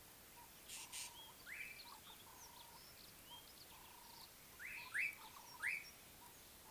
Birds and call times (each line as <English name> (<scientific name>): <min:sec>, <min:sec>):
Rattling Cisticola (Cisticola chiniana): 0:01.0
Slate-colored Boubou (Laniarius funebris): 0:05.0